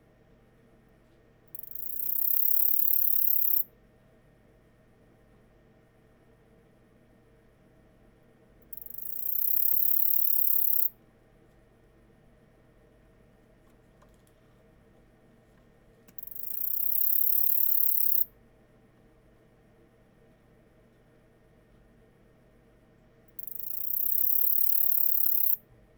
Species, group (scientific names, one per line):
Saga hellenica
Orthoptera